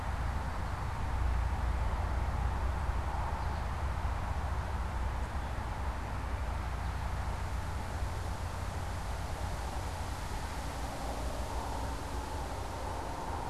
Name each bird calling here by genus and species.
Spinus tristis